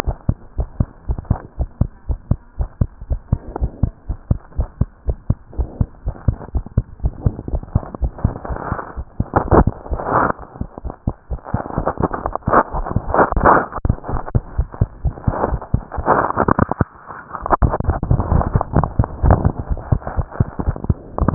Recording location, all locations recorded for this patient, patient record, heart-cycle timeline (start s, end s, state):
pulmonary valve (PV)
aortic valve (AV)+pulmonary valve (PV)+tricuspid valve (TV)+mitral valve (MV)
#Age: Child
#Sex: Female
#Height: 100.0 cm
#Weight: 11.5 kg
#Pregnancy status: False
#Murmur: Absent
#Murmur locations: nan
#Most audible location: nan
#Systolic murmur timing: nan
#Systolic murmur shape: nan
#Systolic murmur grading: nan
#Systolic murmur pitch: nan
#Systolic murmur quality: nan
#Diastolic murmur timing: nan
#Diastolic murmur shape: nan
#Diastolic murmur grading: nan
#Diastolic murmur pitch: nan
#Diastolic murmur quality: nan
#Outcome: Normal
#Campaign: 2015 screening campaign
0.00	0.03	unannotated
0.03	0.18	S1
0.18	0.26	systole
0.26	0.36	S2
0.36	0.56	diastole
0.56	0.68	S1
0.68	0.76	systole
0.76	0.88	S2
0.88	1.06	diastole
1.06	1.18	S1
1.18	1.28	systole
1.28	1.40	S2
1.40	1.58	diastole
1.58	1.70	S1
1.70	1.78	systole
1.78	1.88	S2
1.88	2.06	diastole
2.06	2.20	S1
2.20	2.28	systole
2.28	2.38	S2
2.38	2.58	diastole
2.58	2.70	S1
2.70	2.78	systole
2.78	2.88	S2
2.88	3.08	diastole
3.08	3.20	S1
3.20	3.28	systole
3.28	3.40	S2
3.40	3.60	diastole
3.60	3.72	S1
3.72	3.80	systole
3.80	3.94	S2
3.94	4.08	diastole
4.08	4.18	S1
4.18	4.26	systole
4.26	4.40	S2
4.40	4.56	diastole
4.56	4.70	S1
4.70	4.78	systole
4.78	4.88	S2
4.88	5.06	diastole
5.06	5.16	S1
5.16	5.26	systole
5.26	5.38	S2
5.38	5.56	diastole
5.56	5.70	S1
5.70	5.78	systole
5.78	5.88	S2
5.88	6.04	diastole
6.04	6.14	S1
6.14	6.24	systole
6.24	6.40	S2
6.40	6.54	diastole
6.54	6.64	S1
6.64	6.76	systole
6.76	6.86	S2
6.86	7.02	diastole
7.02	7.16	S1
7.16	7.24	systole
7.24	7.34	S2
7.34	7.52	diastole
7.52	21.34	unannotated